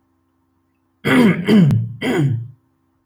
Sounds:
Throat clearing